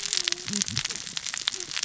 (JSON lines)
{"label": "biophony, cascading saw", "recorder": "SoundTrap 600 or HydroMoth"}